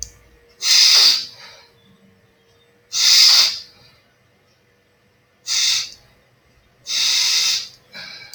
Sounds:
Sniff